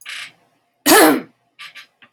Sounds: Throat clearing